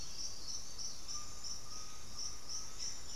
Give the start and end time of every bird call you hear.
[0.71, 2.91] Undulated Tinamou (Crypturellus undulatus)

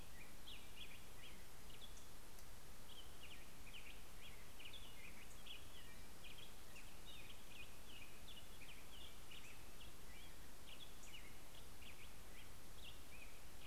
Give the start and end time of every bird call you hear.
[0.00, 13.67] Black-headed Grosbeak (Pheucticus melanocephalus)
[1.60, 2.30] Black-throated Gray Warbler (Setophaga nigrescens)
[10.60, 11.60] Black-throated Gray Warbler (Setophaga nigrescens)

